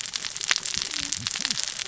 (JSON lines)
{"label": "biophony, cascading saw", "recorder": "SoundTrap 600 or HydroMoth"}